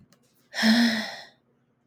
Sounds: Sigh